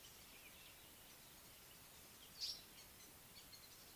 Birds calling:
African Paradise-Flycatcher (Terpsiphone viridis)

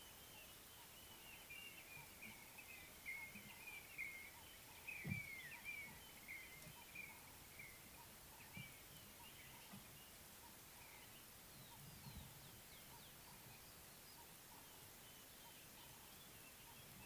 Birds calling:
Blue-naped Mousebird (Urocolius macrourus)

